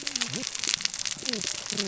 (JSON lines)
{"label": "biophony, cascading saw", "recorder": "SoundTrap 600 or HydroMoth"}